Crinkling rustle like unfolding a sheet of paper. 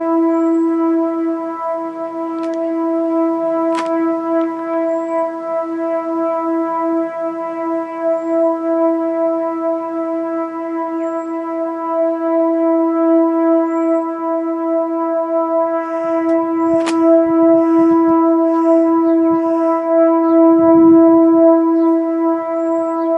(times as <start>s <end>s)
2.4s 4.3s, 16.8s 17.5s